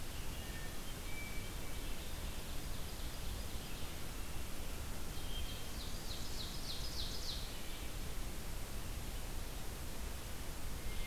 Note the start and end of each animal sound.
[0.00, 11.06] Red-eyed Vireo (Vireo olivaceus)
[0.14, 2.10] Hermit Thrush (Catharus guttatus)
[2.15, 3.78] Ovenbird (Seiurus aurocapilla)
[4.76, 6.18] Hermit Thrush (Catharus guttatus)
[5.48, 7.57] Ovenbird (Seiurus aurocapilla)
[10.55, 11.06] Hermit Thrush (Catharus guttatus)

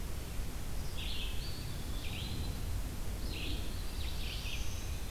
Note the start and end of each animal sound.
[0.00, 5.11] Red-eyed Vireo (Vireo olivaceus)
[1.28, 2.71] Eastern Wood-Pewee (Contopus virens)
[3.38, 5.03] Black-throated Blue Warbler (Setophaga caerulescens)
[3.70, 5.11] Eastern Wood-Pewee (Contopus virens)

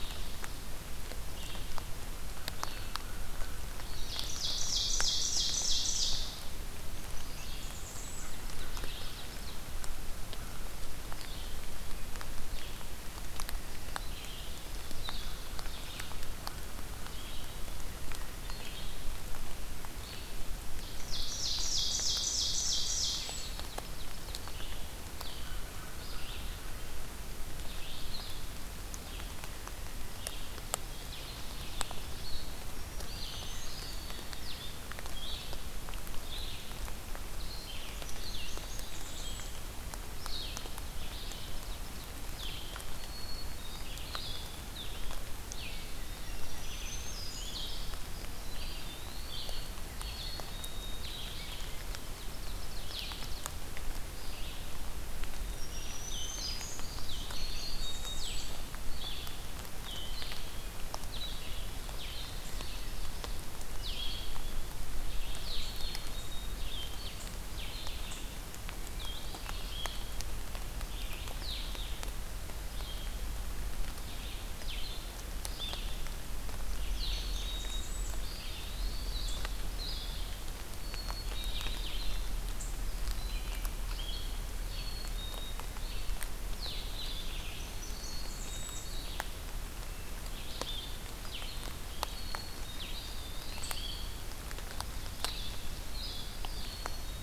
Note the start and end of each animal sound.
[0.00, 59.47] Red-eyed Vireo (Vireo olivaceus)
[2.28, 3.64] American Crow (Corvus brachyrhynchos)
[3.80, 6.47] Ovenbird (Seiurus aurocapilla)
[6.98, 8.40] Blackburnian Warbler (Setophaga fusca)
[7.74, 9.77] Ovenbird (Seiurus aurocapilla)
[10.19, 10.67] American Crow (Corvus brachyrhynchos)
[20.75, 24.45] Ovenbird (Seiurus aurocapilla)
[25.24, 26.84] American Crow (Corvus brachyrhynchos)
[30.62, 32.32] Ovenbird (Seiurus aurocapilla)
[32.57, 34.07] Black-throated Green Warbler (Setophaga virens)
[32.97, 34.44] Eastern Wood-Pewee (Contopus virens)
[33.69, 34.65] Black-capped Chickadee (Poecile atricapillus)
[37.90, 39.32] Black-capped Chickadee (Poecile atricapillus)
[37.98, 39.64] Blackburnian Warbler (Setophaga fusca)
[42.91, 44.00] Black-capped Chickadee (Poecile atricapillus)
[46.14, 47.75] Black-throated Green Warbler (Setophaga virens)
[48.49, 49.77] Eastern Wood-Pewee (Contopus virens)
[49.98, 51.22] Black-capped Chickadee (Poecile atricapillus)
[51.54, 53.56] Ovenbird (Seiurus aurocapilla)
[55.49, 56.99] Black-throated Green Warbler (Setophaga virens)
[57.10, 58.58] Blackburnian Warbler (Setophaga fusca)
[57.25, 58.32] Black-capped Chickadee (Poecile atricapillus)
[59.94, 97.22] Red-eyed Vireo (Vireo olivaceus)
[65.52, 66.72] Black-capped Chickadee (Poecile atricapillus)
[76.70, 78.22] Blackburnian Warbler (Setophaga fusca)
[76.83, 77.98] Black-capped Chickadee (Poecile atricapillus)
[78.10, 79.42] Eastern Wood-Pewee (Contopus virens)
[80.66, 81.98] Black-capped Chickadee (Poecile atricapillus)
[84.58, 85.64] Black-capped Chickadee (Poecile atricapillus)
[87.24, 88.96] Blackburnian Warbler (Setophaga fusca)
[87.73, 88.97] Black-capped Chickadee (Poecile atricapillus)
[91.97, 93.10] Black-capped Chickadee (Poecile atricapillus)
[92.70, 94.22] Eastern Wood-Pewee (Contopus virens)
[94.51, 96.29] Ovenbird (Seiurus aurocapilla)
[96.45, 97.22] Black-capped Chickadee (Poecile atricapillus)

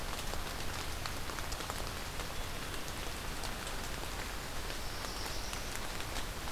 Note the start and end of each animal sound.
[4.50, 5.79] Black-throated Blue Warbler (Setophaga caerulescens)

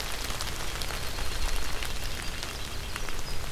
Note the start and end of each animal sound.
[0.00, 3.22] Red-breasted Nuthatch (Sitta canadensis)
[0.45, 3.51] Winter Wren (Troglodytes hiemalis)

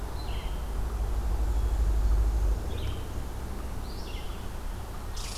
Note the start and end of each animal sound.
[0.00, 5.38] Red-eyed Vireo (Vireo olivaceus)

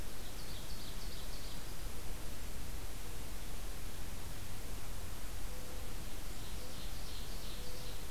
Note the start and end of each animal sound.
[0.02, 1.69] Ovenbird (Seiurus aurocapilla)
[5.46, 8.11] Mourning Dove (Zenaida macroura)
[6.19, 8.05] Ovenbird (Seiurus aurocapilla)

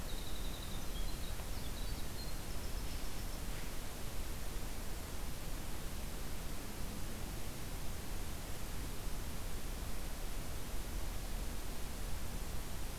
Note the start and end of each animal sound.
[0.00, 3.39] Winter Wren (Troglodytes hiemalis)

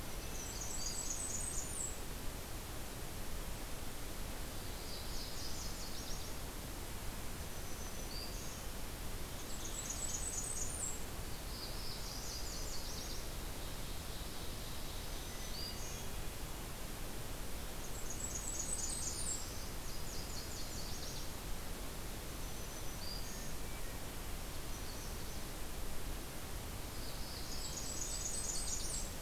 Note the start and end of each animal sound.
[0.00, 1.29] Hermit Thrush (Catharus guttatus)
[0.06, 2.25] Blackburnian Warbler (Setophaga fusca)
[4.43, 6.57] Nashville Warbler (Leiothlypis ruficapilla)
[7.31, 8.82] Black-throated Green Warbler (Setophaga virens)
[9.34, 11.14] Blackburnian Warbler (Setophaga fusca)
[11.13, 12.52] Black-throated Blue Warbler (Setophaga caerulescens)
[11.46, 13.36] Nashville Warbler (Leiothlypis ruficapilla)
[13.06, 14.87] Ovenbird (Seiurus aurocapilla)
[14.59, 16.20] Black-throated Green Warbler (Setophaga virens)
[15.07, 16.64] Hermit Thrush (Catharus guttatus)
[17.72, 19.69] Blackburnian Warbler (Setophaga fusca)
[18.47, 19.90] Black-throated Blue Warbler (Setophaga caerulescens)
[19.69, 21.54] Nashville Warbler (Leiothlypis ruficapilla)
[22.10, 23.78] Black-throated Green Warbler (Setophaga virens)
[23.04, 24.07] Hermit Thrush (Catharus guttatus)
[24.42, 25.44] Magnolia Warbler (Setophaga magnolia)
[26.92, 28.21] Black-throated Blue Warbler (Setophaga caerulescens)
[27.18, 29.21] Blackburnian Warbler (Setophaga fusca)
[27.78, 29.20] Nashville Warbler (Leiothlypis ruficapilla)

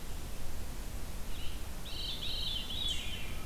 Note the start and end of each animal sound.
[1.80, 3.46] Veery (Catharus fuscescens)

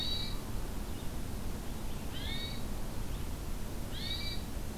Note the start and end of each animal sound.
[0.00, 4.78] Red-eyed Vireo (Vireo olivaceus)
[2.11, 2.63] Hermit Thrush (Catharus guttatus)
[3.90, 4.44] Hermit Thrush (Catharus guttatus)

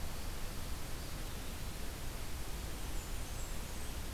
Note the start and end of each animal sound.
[0.66, 1.95] Eastern Wood-Pewee (Contopus virens)
[2.47, 3.93] Blackburnian Warbler (Setophaga fusca)

